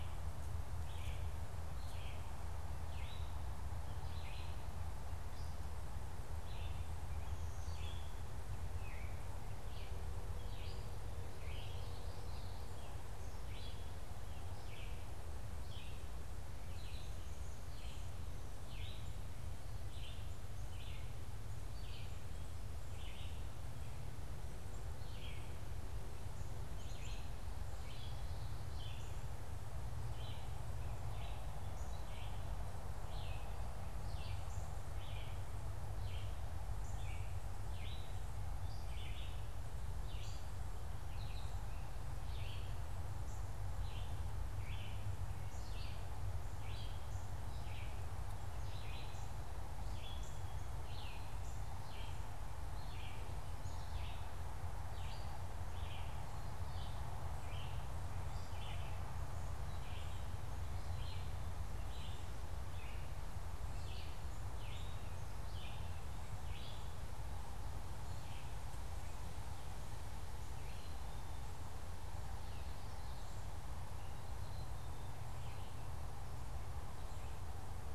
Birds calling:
Northern Cardinal (Cardinalis cardinalis), Red-eyed Vireo (Vireo olivaceus), Common Yellowthroat (Geothlypis trichas), Black-capped Chickadee (Poecile atricapillus)

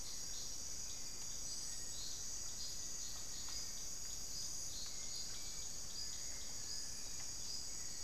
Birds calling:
Hauxwell's Thrush (Turdus hauxwelli)

